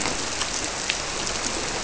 {"label": "biophony", "recorder": "SoundTrap 300"}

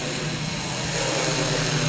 {"label": "anthrophony, boat engine", "recorder": "SoundTrap 500"}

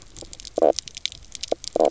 {"label": "biophony, knock croak", "recorder": "SoundTrap 300"}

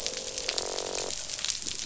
{"label": "biophony, croak", "recorder": "SoundTrap 500"}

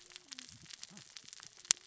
{"label": "biophony, cascading saw", "recorder": "SoundTrap 600 or HydroMoth"}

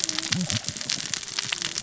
{"label": "biophony, cascading saw", "recorder": "SoundTrap 600 or HydroMoth"}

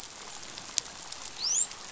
{"label": "biophony, dolphin", "recorder": "SoundTrap 500"}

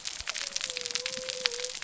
{"label": "biophony", "recorder": "SoundTrap 300"}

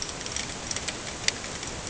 {"label": "ambient", "recorder": "HydroMoth"}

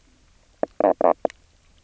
{"label": "biophony, knock croak", "recorder": "SoundTrap 300"}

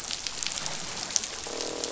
{"label": "biophony, croak", "recorder": "SoundTrap 500"}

